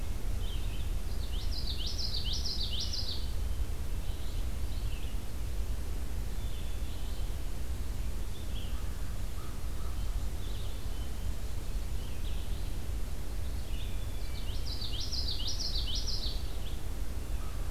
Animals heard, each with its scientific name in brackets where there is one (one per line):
Common Yellowthroat (Geothlypis trichas)
American Crow (Corvus brachyrhynchos)
Black-capped Chickadee (Poecile atricapillus)
Red-eyed Vireo (Vireo olivaceus)